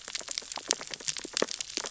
{"label": "biophony, sea urchins (Echinidae)", "recorder": "SoundTrap 600 or HydroMoth"}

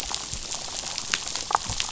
{"label": "biophony, damselfish", "recorder": "SoundTrap 500"}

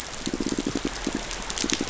{"label": "biophony, pulse", "recorder": "SoundTrap 500"}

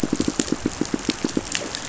{"label": "biophony, pulse", "recorder": "SoundTrap 500"}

